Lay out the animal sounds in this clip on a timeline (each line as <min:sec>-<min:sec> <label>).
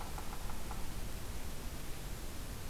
0:00.0-0:01.1 Yellow-bellied Sapsucker (Sphyrapicus varius)